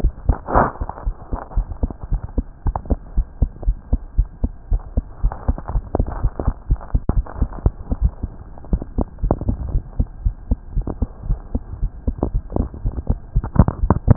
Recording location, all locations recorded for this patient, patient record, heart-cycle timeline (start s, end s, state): aortic valve (AV)
aortic valve (AV)+pulmonary valve (PV)+tricuspid valve (TV)+mitral valve (MV)
#Age: Child
#Sex: Female
#Height: 127.0 cm
#Weight: 24.2 kg
#Pregnancy status: False
#Murmur: Absent
#Murmur locations: nan
#Most audible location: nan
#Systolic murmur timing: nan
#Systolic murmur shape: nan
#Systolic murmur grading: nan
#Systolic murmur pitch: nan
#Systolic murmur quality: nan
#Diastolic murmur timing: nan
#Diastolic murmur shape: nan
#Diastolic murmur grading: nan
#Diastolic murmur pitch: nan
#Diastolic murmur quality: nan
#Outcome: Normal
#Campaign: 2015 screening campaign
0.00	2.09	unannotated
2.09	2.22	S1
2.22	2.34	systole
2.34	2.48	S2
2.48	2.63	diastole
2.63	2.76	S1
2.76	2.88	systole
2.88	2.98	S2
2.98	3.13	diastole
3.13	3.26	S1
3.26	3.38	systole
3.38	3.50	S2
3.50	3.64	diastole
3.64	3.76	S1
3.76	3.90	systole
3.90	4.00	S2
4.00	4.16	diastole
4.16	4.28	S1
4.28	4.40	systole
4.40	4.54	S2
4.54	4.70	diastole
4.70	4.82	S1
4.82	4.94	systole
4.94	5.04	S2
5.04	5.22	diastole
5.22	5.32	S1
5.32	5.46	systole
5.46	5.56	S2
5.56	5.70	diastole
5.70	5.84	S1
5.84	5.96	systole
5.96	6.10	S2
6.10	6.22	diastole
6.22	6.32	S1
6.32	6.44	systole
6.44	6.56	S2
6.56	6.70	diastole
6.70	6.80	S1
6.80	6.92	systole
6.92	7.02	S2
7.02	7.16	diastole
7.16	7.26	S1
7.26	7.40	systole
7.40	7.50	S2
7.50	7.63	diastole
7.63	7.73	S1
7.73	7.87	systole
7.87	7.97	S2
7.97	8.70	unannotated
8.70	8.82	S1
8.82	8.96	systole
8.96	9.06	S2
9.06	9.21	diastole
9.21	9.30	S1
9.30	9.46	systole
9.46	9.57	S2
9.57	9.72	diastole
9.72	9.84	S1
9.84	9.97	systole
9.97	10.08	S2
10.08	10.24	diastole
10.24	10.34	S1
10.34	10.49	systole
10.49	10.60	S2
10.60	10.74	diastole
10.74	10.84	S1
10.84	11.00	systole
11.00	11.10	S2
11.10	11.28	diastole
11.28	11.37	S1
11.37	14.16	unannotated